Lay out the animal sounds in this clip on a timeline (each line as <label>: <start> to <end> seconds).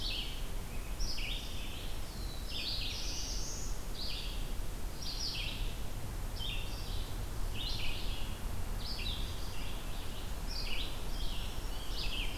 Red-eyed Vireo (Vireo olivaceus): 0.0 to 12.4 seconds
Black-throated Green Warbler (Setophaga virens): 1.5 to 3.1 seconds
Black-throated Blue Warbler (Setophaga caerulescens): 1.9 to 3.9 seconds
Black-throated Green Warbler (Setophaga virens): 11.1 to 12.2 seconds